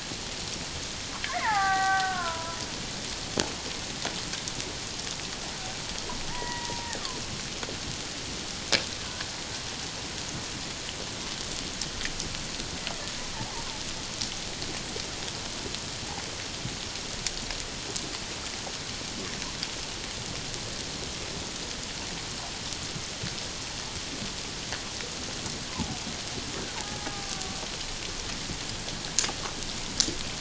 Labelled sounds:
1.2	2.6	killer whale, Bigg's (transient), 0.78 to 2.3 kHz
6.3	7.0	killer whale, Bigg's (transient), 0.84 to 2.0 kHz
25.7	26.0	killer whale, Bigg's (transient), 0.78 to 1.1 kHz
26.8	27.6	killer whale, Bigg's (transient), 0.78 to 1.2 kHz

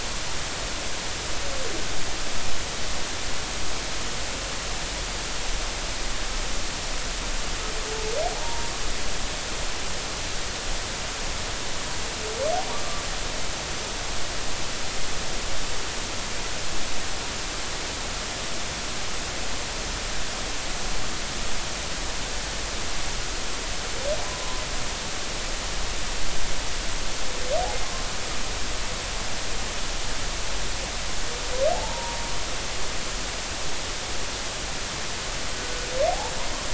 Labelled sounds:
8.3	8.7	humpback whale, 0.80 to 0.99 kHz
31.7	32.3	humpback whale, 0.80 to 0.99 kHz

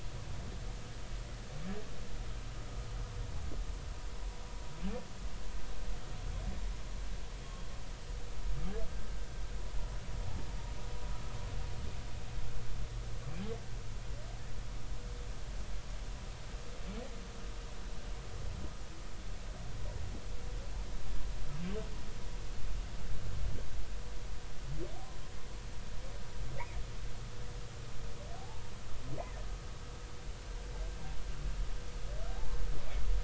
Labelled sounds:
28.4	28.6	humpback whale, 0.80 to 0.93 kHz
32.3	32.6	humpback whale, 0.80 to 0.93 kHz

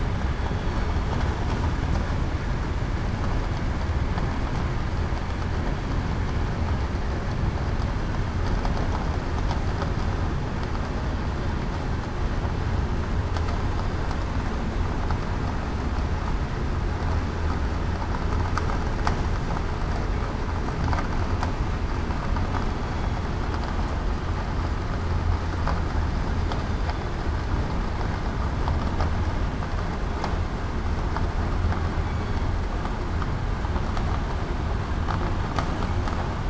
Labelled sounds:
0.6	1.1	killer whale, southern resident, 4.3 to 4.5 kHz
26.7	27.1	killer whale, southern resident, 3.4 to 3.6 kHz

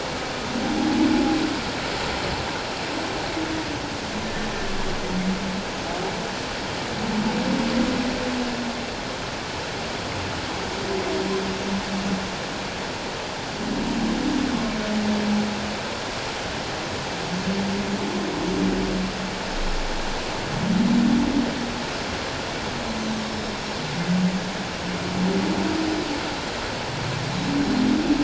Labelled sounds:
23.2	23.6	Pacific white-sided dolphin, 5.2 to 5.5 kHz

